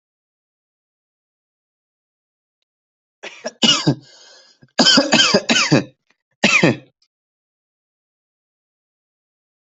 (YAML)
expert_labels:
- quality: ok
  cough_type: dry
  dyspnea: false
  wheezing: false
  stridor: false
  choking: false
  congestion: false
  nothing: true
  diagnosis: COVID-19
  severity: mild